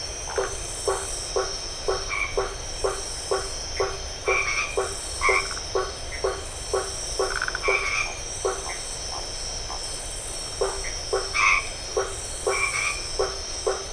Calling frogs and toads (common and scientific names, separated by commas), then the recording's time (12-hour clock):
blacksmith tree frog (Boana faber), white-edged tree frog (Boana albomarginata), Phyllomedusa distincta, Dendropsophus elegans
9:00pm